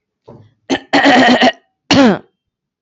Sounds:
Throat clearing